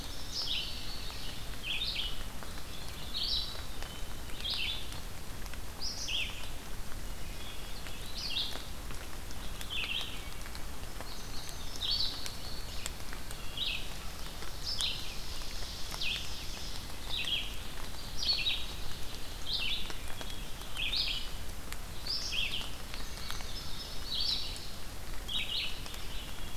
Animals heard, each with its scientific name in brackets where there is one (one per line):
Wood Thrush (Hylocichla mustelina)
Ovenbird (Seiurus aurocapilla)
Red-eyed Vireo (Vireo olivaceus)
Indigo Bunting (Passerina cyanea)